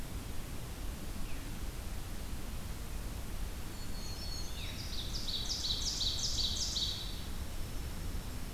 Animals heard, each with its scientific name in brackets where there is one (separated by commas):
Ovenbird (Seiurus aurocapilla), Veery (Catharus fuscescens), Brown Creeper (Certhia americana), Dark-eyed Junco (Junco hyemalis), Black-throated Green Warbler (Setophaga virens)